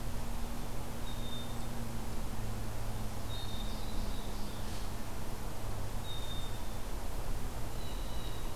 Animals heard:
Blue Jay (Cyanocitta cristata), Black-capped Chickadee (Poecile atricapillus), American Goldfinch (Spinus tristis)

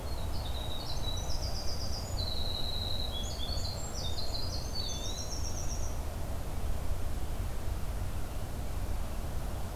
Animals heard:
Eastern Wood-Pewee (Contopus virens), Winter Wren (Troglodytes hiemalis)

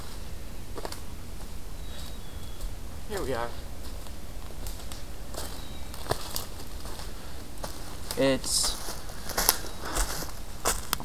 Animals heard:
Black-capped Chickadee (Poecile atricapillus)

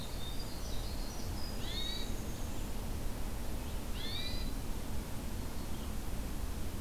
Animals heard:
Winter Wren (Troglodytes hiemalis), Red-eyed Vireo (Vireo olivaceus), Hermit Thrush (Catharus guttatus)

